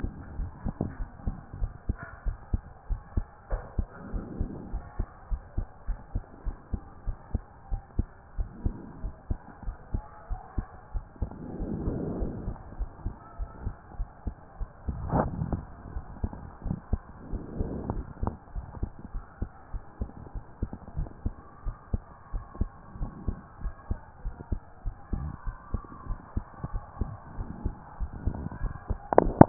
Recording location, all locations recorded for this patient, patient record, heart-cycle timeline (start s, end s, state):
pulmonary valve (PV)
aortic valve (AV)+pulmonary valve (PV)+tricuspid valve (TV)+mitral valve (MV)
#Age: Child
#Sex: Male
#Height: 151.0 cm
#Weight: 48.8 kg
#Pregnancy status: False
#Murmur: Absent
#Murmur locations: nan
#Most audible location: nan
#Systolic murmur timing: nan
#Systolic murmur shape: nan
#Systolic murmur grading: nan
#Systolic murmur pitch: nan
#Systolic murmur quality: nan
#Diastolic murmur timing: nan
#Diastolic murmur shape: nan
#Diastolic murmur grading: nan
#Diastolic murmur pitch: nan
#Diastolic murmur quality: nan
#Outcome: Abnormal
#Campaign: 2014 screening campaign
0.00	0.98	unannotated
0.98	1.08	S1
1.08	1.26	systole
1.26	1.34	S2
1.34	1.60	diastole
1.60	1.70	S1
1.70	1.88	systole
1.88	1.96	S2
1.96	2.26	diastole
2.26	2.36	S1
2.36	2.52	systole
2.52	2.62	S2
2.62	2.90	diastole
2.90	3.00	S1
3.00	3.16	systole
3.16	3.26	S2
3.26	3.52	diastole
3.52	3.62	S1
3.62	3.76	systole
3.76	3.86	S2
3.86	4.12	diastole
4.12	4.24	S1
4.24	4.38	systole
4.38	4.50	S2
4.50	4.72	diastole
4.72	4.82	S1
4.82	4.98	systole
4.98	5.08	S2
5.08	5.30	diastole
5.30	5.42	S1
5.42	5.56	systole
5.56	5.66	S2
5.66	5.88	diastole
5.88	5.98	S1
5.98	6.14	systole
6.14	6.24	S2
6.24	6.46	diastole
6.46	6.56	S1
6.56	6.72	systole
6.72	6.80	S2
6.80	7.06	diastole
7.06	7.16	S1
7.16	7.32	systole
7.32	7.42	S2
7.42	7.70	diastole
7.70	7.82	S1
7.82	7.96	systole
7.96	8.06	S2
8.06	8.38	diastole
8.38	8.48	S1
8.48	8.64	systole
8.64	8.74	S2
8.74	9.02	diastole
9.02	9.14	S1
9.14	9.28	systole
9.28	9.38	S2
9.38	9.66	diastole
9.66	9.76	S1
9.76	9.92	systole
9.92	10.02	S2
10.02	10.30	diastole
10.30	10.40	S1
10.40	10.56	systole
10.56	10.66	S2
10.66	10.94	diastole
10.94	11.04	S1
11.04	11.20	systole
11.20	11.30	S2
11.30	11.60	diastole
11.60	29.49	unannotated